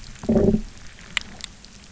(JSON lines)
{"label": "biophony, low growl", "recorder": "SoundTrap 300"}